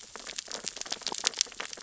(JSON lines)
{"label": "biophony, sea urchins (Echinidae)", "recorder": "SoundTrap 600 or HydroMoth"}